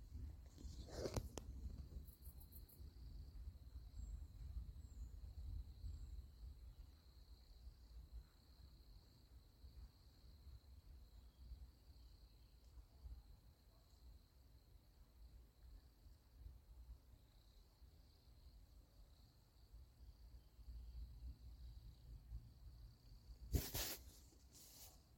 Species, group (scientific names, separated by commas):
Nemobius sylvestris, Orthoptera